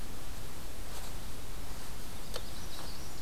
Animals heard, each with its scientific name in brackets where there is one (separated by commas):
Magnolia Warbler (Setophaga magnolia)